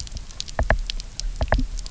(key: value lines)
label: biophony, knock
recorder: SoundTrap 300